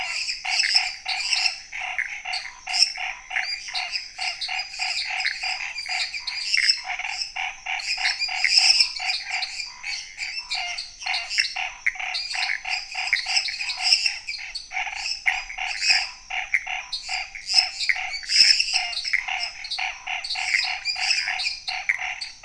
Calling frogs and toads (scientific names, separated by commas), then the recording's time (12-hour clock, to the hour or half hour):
Boana raniceps, Dendropsophus minutus, Dendropsophus nanus, Pithecopus azureus
~9pm